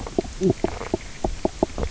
{"label": "biophony, knock croak", "recorder": "SoundTrap 300"}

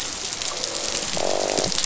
{"label": "biophony, croak", "recorder": "SoundTrap 500"}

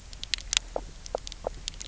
{"label": "biophony, knock croak", "recorder": "SoundTrap 300"}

